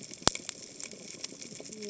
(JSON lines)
{"label": "biophony, cascading saw", "recorder": "HydroMoth"}